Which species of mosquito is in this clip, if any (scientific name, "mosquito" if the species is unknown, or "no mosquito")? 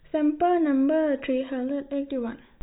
no mosquito